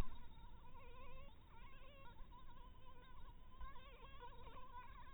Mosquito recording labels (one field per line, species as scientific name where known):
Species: Anopheles dirus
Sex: female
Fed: blood-fed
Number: one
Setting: cup